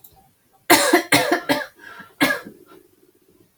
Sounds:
Cough